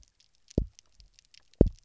{"label": "biophony, double pulse", "recorder": "SoundTrap 300"}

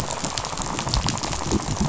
{"label": "biophony, rattle", "recorder": "SoundTrap 500"}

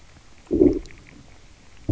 {"label": "biophony, low growl", "recorder": "SoundTrap 300"}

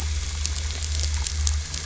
{"label": "anthrophony, boat engine", "recorder": "SoundTrap 500"}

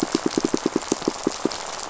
{"label": "biophony, pulse", "recorder": "SoundTrap 500"}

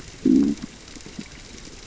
{"label": "biophony, growl", "recorder": "SoundTrap 600 or HydroMoth"}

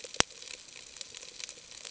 {"label": "ambient", "recorder": "HydroMoth"}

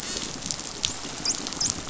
{"label": "biophony, dolphin", "recorder": "SoundTrap 500"}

